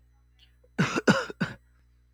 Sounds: Cough